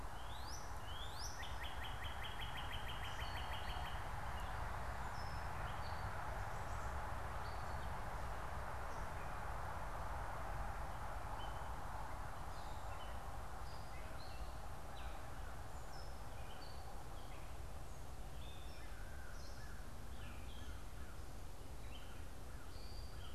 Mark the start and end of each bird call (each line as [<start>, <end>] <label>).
[0.00, 3.85] American Crow (Corvus brachyrhynchos)
[0.00, 4.35] Northern Cardinal (Cardinalis cardinalis)
[0.00, 23.25] Gray Catbird (Dumetella carolinensis)
[19.25, 23.35] American Crow (Corvus brachyrhynchos)